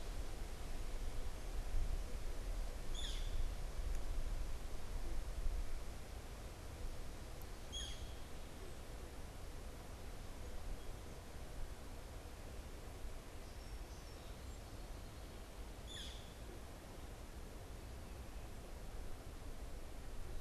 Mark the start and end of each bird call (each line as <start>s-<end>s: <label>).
2.8s-3.6s: Northern Flicker (Colaptes auratus)
7.6s-8.3s: Northern Flicker (Colaptes auratus)
15.7s-16.4s: Northern Flicker (Colaptes auratus)